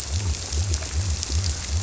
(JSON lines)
{"label": "biophony", "recorder": "SoundTrap 300"}